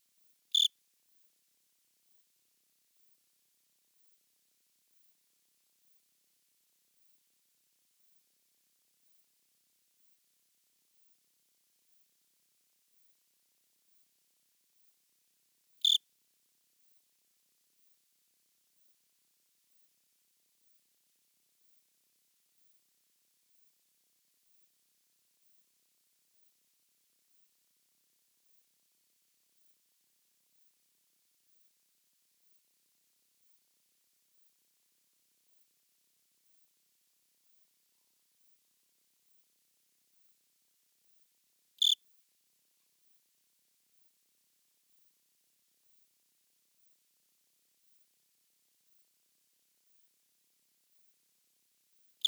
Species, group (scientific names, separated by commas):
Eugryllodes pipiens, Orthoptera